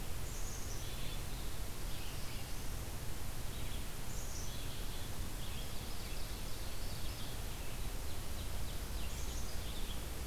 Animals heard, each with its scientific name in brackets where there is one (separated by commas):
Ovenbird (Seiurus aurocapilla), Black-capped Chickadee (Poecile atricapillus), Red-eyed Vireo (Vireo olivaceus)